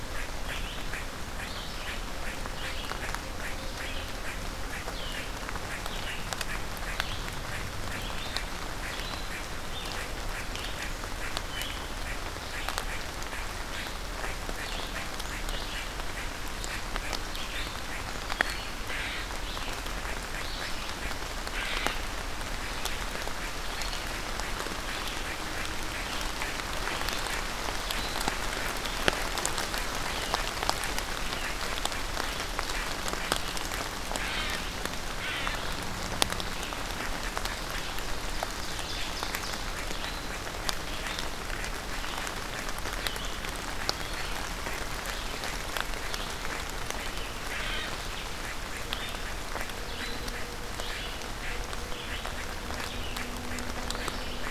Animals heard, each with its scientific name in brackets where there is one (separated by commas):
Ovenbird (Seiurus aurocapilla), Red-eyed Vireo (Vireo olivaceus), unknown mammal